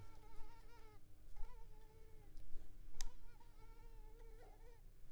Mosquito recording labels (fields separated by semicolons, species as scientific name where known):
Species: Culex pipiens complex; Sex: female; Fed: unfed; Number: one; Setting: cup